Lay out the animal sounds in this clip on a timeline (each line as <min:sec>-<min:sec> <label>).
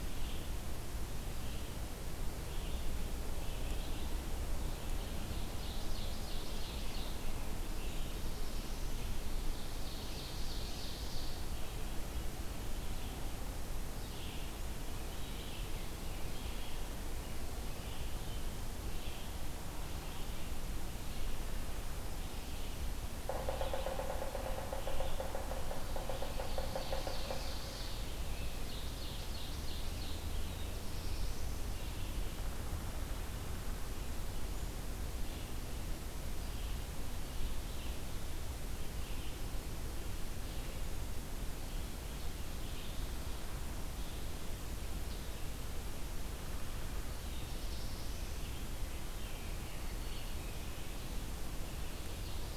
0:00.0-0:43.1 Red-eyed Vireo (Vireo olivaceus)
0:05.0-0:07.2 Ovenbird (Seiurus aurocapilla)
0:09.2-0:11.6 Ovenbird (Seiurus aurocapilla)
0:23.1-0:27.7 Yellow-bellied Sapsucker (Sphyrapicus varius)
0:26.1-0:30.2 Ovenbird (Seiurus aurocapilla)
0:30.2-0:31.7 Black-throated Blue Warbler (Setophaga caerulescens)
0:43.8-0:52.6 Red-eyed Vireo (Vireo olivaceus)
0:47.0-0:48.5 Black-throated Blue Warbler (Setophaga caerulescens)